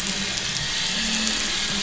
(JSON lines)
{"label": "anthrophony, boat engine", "recorder": "SoundTrap 500"}